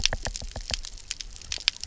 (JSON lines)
{"label": "biophony, knock", "recorder": "SoundTrap 300"}